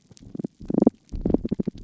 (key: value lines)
label: biophony, damselfish
recorder: SoundTrap 300

label: biophony, pulse
recorder: SoundTrap 300